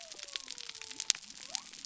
{"label": "biophony", "recorder": "SoundTrap 300"}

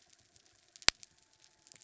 {"label": "biophony", "recorder": "SoundTrap 300"}
{"label": "anthrophony, mechanical", "recorder": "SoundTrap 300"}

